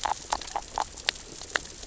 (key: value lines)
label: biophony, grazing
recorder: SoundTrap 600 or HydroMoth